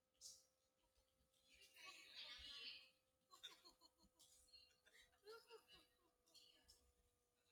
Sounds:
Sigh